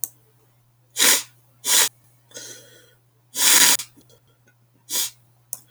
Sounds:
Sniff